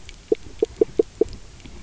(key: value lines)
label: biophony, knock croak
recorder: SoundTrap 300